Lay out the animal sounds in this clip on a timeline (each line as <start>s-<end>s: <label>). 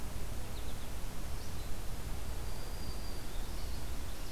0.5s-0.9s: American Goldfinch (Spinus tristis)
2.2s-3.8s: Black-throated Green Warbler (Setophaga virens)
3.4s-4.0s: American Goldfinch (Spinus tristis)